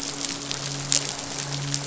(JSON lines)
{"label": "biophony, midshipman", "recorder": "SoundTrap 500"}